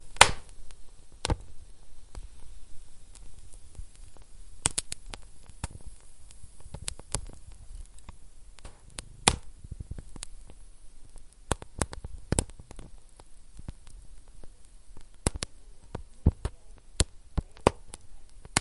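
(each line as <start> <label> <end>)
0.1 Fire ignites with a crisp crackling sound. 0.3
1.1 Flame ignites with a slight whooshing noise. 1.5
4.5 The crackling or popping of lit flames. 5.8
6.7 The crackling or popping of lit flames. 7.3
8.4 The crackling or popping of lit flames. 10.3
11.3 The crackling or popping of lit flames. 12.7
15.1 The crackling or popping of lit flames. 18.6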